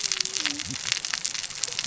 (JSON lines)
{"label": "biophony, cascading saw", "recorder": "SoundTrap 600 or HydroMoth"}